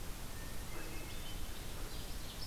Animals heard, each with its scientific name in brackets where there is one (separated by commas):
Hermit Thrush (Catharus guttatus), Ovenbird (Seiurus aurocapilla)